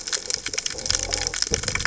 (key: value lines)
label: biophony
recorder: HydroMoth